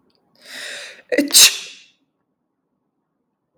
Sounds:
Sneeze